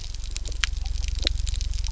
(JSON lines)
{"label": "anthrophony, boat engine", "recorder": "SoundTrap 300"}